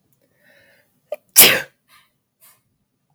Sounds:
Sneeze